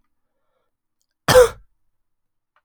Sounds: Cough